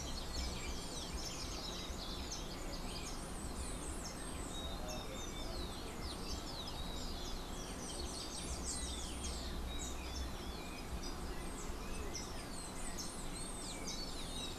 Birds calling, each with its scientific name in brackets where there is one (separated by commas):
Rufous-collared Sparrow (Zonotrichia capensis), Golden-faced Tyrannulet (Zimmerius chrysops)